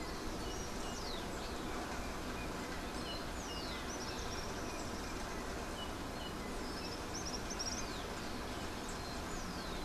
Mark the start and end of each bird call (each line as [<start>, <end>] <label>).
[0.00, 7.98] Yellow-backed Oriole (Icterus chrysater)
[0.00, 9.84] Common Tody-Flycatcher (Todirostrum cinereum)